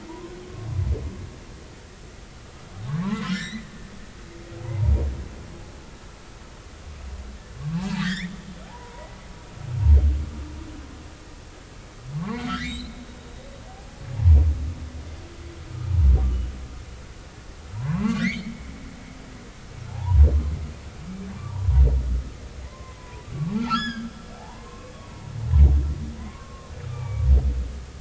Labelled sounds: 0.1	0.3	humpback whale, 0.90 to 1.1 kHz
3.0	3.7	humpback whale, 0.83 to 7.6 kHz
4.6	4.9	humpback whale, 0.80 to 1.1 kHz
7.8	9.1	humpback whale, 0.80 to 3.8 kHz
12.2	13.0	humpback whale, 0.83 to 4.3 kHz
14.2	14.4	humpback whale, 0.80 to 1.0 kHz
17.8	18.7	humpback whale, 0.83 to 4.7 kHz
19.9	20.2	humpback whale, 0.80 to 1.1 kHz
22.7	25.3	humpback whale, 0.80 to 6.9 kHz
26.2	27.3	humpback whale, 0.96 to 2.4 kHz

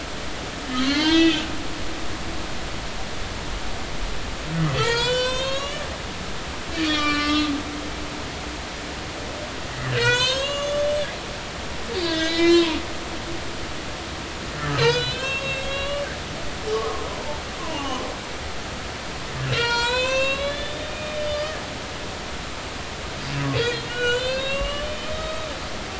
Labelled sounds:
0.8	1.4	humpback whale, 1.4 to 5.0 kHz
4.7	5.8	humpback whale, 0.86 to 8.0 kHz
6.7	8.2	humpback whale, 1.1 to 4.9 kHz
9.9	12.8	humpback whale, 0.90 to 7.8 kHz
14.6	16.1	humpback whale, 0.99 to 7.7 kHz
16.7	18.0	humpback whale, 0.80 to 1.3 kHz
19.5	21.6	humpback whale, 0.90 to 8.0 kHz
23.6	25.5	humpback whale, 1.0 to 7.3 kHz

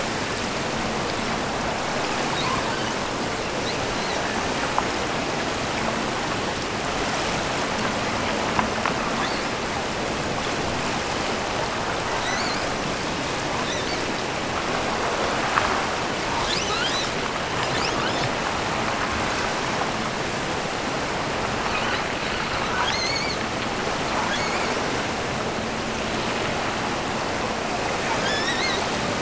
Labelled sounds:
2.2	2.7	killer whale, offshore, 1.8 to 4.7 kHz
9.1	9.6	killer whale, offshore, 3.4 to 5.5 kHz
12.0	12.8	killer whale, offshore, 1.7 to 8.0 kHz
13.6	14.3	killer whale, offshore, 3.2 to 8.0 kHz
16.4	17.3	killer whale, offshore, 1.0 to 8.0 kHz
17.6	18.4	killer whale, offshore, 1.6 to 8.0 kHz
21.6	23.5	killer whale, offshore, 0.89 to 8.0 kHz
24.2	25.1	killer whale, offshore, 1.5 to 8.0 kHz
28.2	28.9	killer whale, offshore, 1.4 to 8.0 kHz

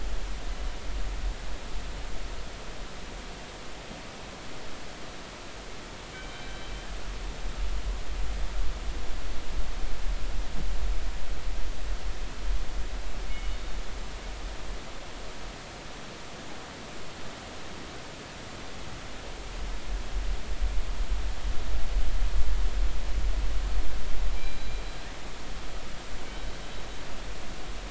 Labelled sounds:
6.1	6.5	killer whale, northern resident, G clan, 2.2 to 3.2 kHz
13.2	13.6	killer whale, northern resident, G clan, 2.1 to 3.1 kHz
24.3	24.8	killer whale, northern resident, G clan, 2.3 to 4.0 kHz
26.3	26.5	killer whale, northern resident, G clan, 3.0 to 3.1 kHz

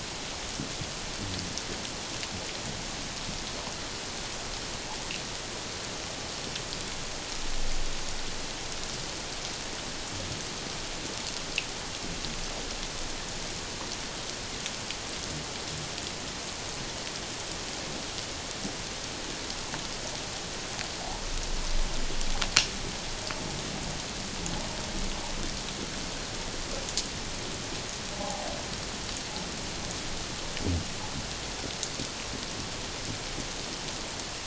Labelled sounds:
28.2	28.5	humpback whale, 0.78 to 0.91 kHz

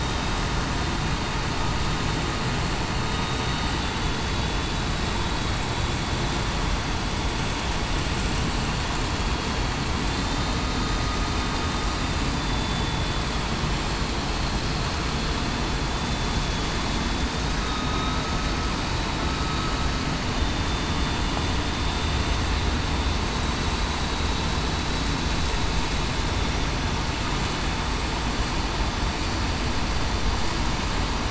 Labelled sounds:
3.8	4.7	vessel noise, 3.4 to 3.5 kHz
5.3	5.7	vessel noise, 3.38 to 3.40 kHz
10.0	10.5	vessel noise, 3.4 to 3.7 kHz
12.3	13.2	vessel noise, 3.4 to 3.5 kHz
15.9	16.3	vessel noise, 3.4 to 3.6 kHz
17.7	18.2	vessel noise, 3.7 to 3.8 kHz
20.4	21.2	vessel noise, 3.5 to 3.6 kHz

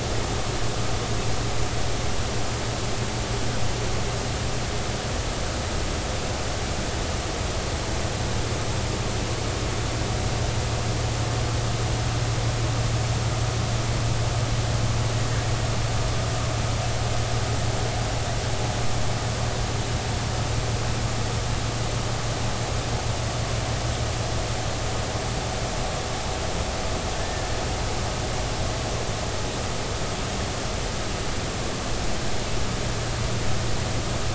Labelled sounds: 27.2	27.5	killer whale, 1.7 to 1.9 kHz

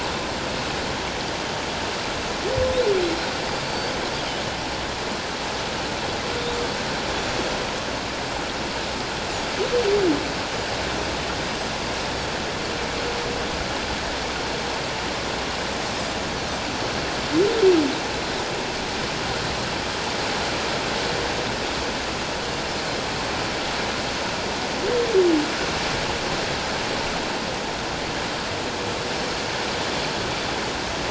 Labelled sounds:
3.0	3.3	Pacific white-sided dolphin, 3.9 to 4.2 kHz
3.6	3.9	Pacific white-sided dolphin, 4.4 to 4.7 kHz

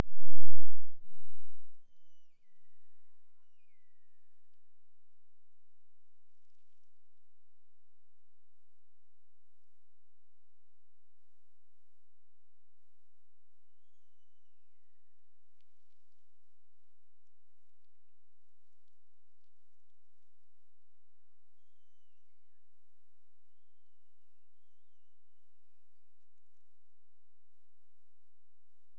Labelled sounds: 1.7	4.9	killer whale, Bigg's (transient), Gulf of Alaska transient, 1.7 to 6.5 kHz
13.6	15.5	killer whale, Bigg's (transient), Gulf of Alaska transient, 1.7 to 7.0 kHz
21.5	22.8	killer whale, Bigg's (transient), Gulf of Alaska transient, 1.5 to 6.6 kHz

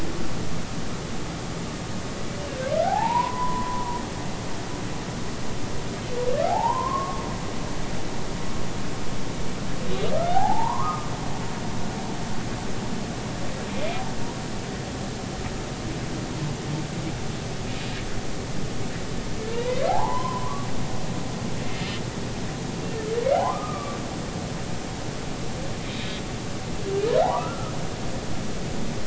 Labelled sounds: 2.8	4.0	humpback whale, 0.80 to 1.1 kHz
6.5	7.2	humpback whale, 0.80 to 1.2 kHz
9.9	11.1	humpback whale, 0.80 to 3.9 kHz
13.7	14.0	humpback whale, 2.3 to 2.5 kHz
19.5	20.7	humpback whale, 0.80 to 3.2 kHz
23.3	24.0	humpback whale, 0.80 to 1.3 kHz
25.9	26.2	humpback whale, 3.6 to 3.9 kHz
27.2	27.7	humpback whale, 0.80 to 1.4 kHz

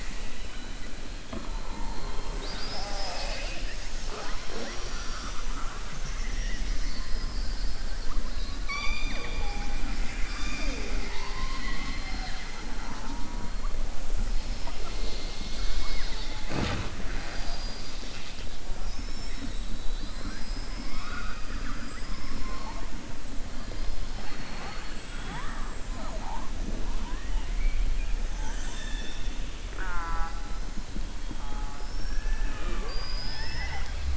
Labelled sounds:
19.8	22.1	killer whale, southern resident, 1.1 to 5.6 kHz

